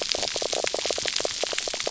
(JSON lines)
{"label": "biophony, knock croak", "recorder": "SoundTrap 300"}